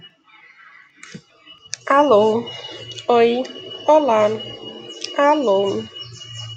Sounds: Cough